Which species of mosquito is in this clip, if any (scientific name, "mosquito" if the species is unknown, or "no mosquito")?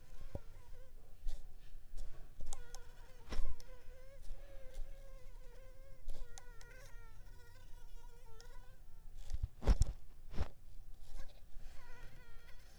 Culex pipiens complex